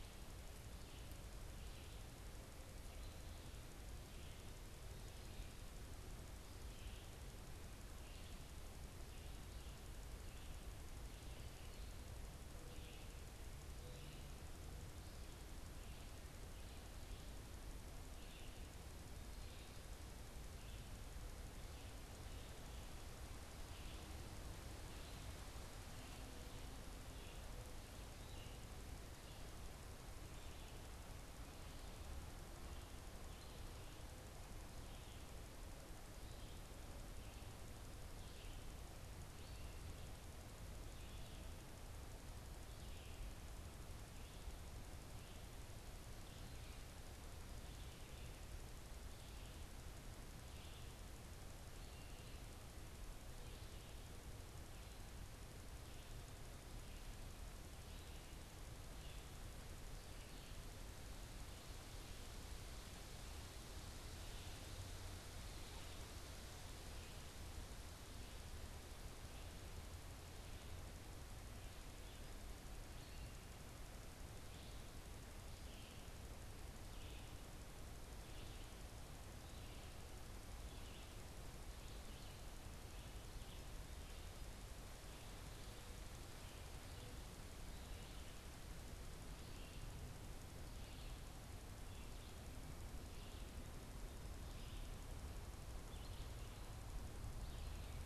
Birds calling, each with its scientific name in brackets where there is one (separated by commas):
Red-eyed Vireo (Vireo olivaceus)